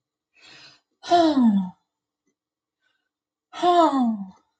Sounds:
Sigh